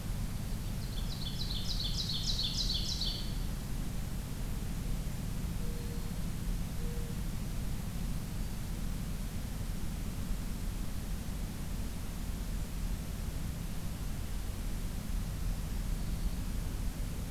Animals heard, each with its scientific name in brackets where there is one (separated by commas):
Ovenbird (Seiurus aurocapilla), Black-throated Green Warbler (Setophaga virens), Mourning Dove (Zenaida macroura)